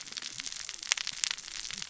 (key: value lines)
label: biophony, cascading saw
recorder: SoundTrap 600 or HydroMoth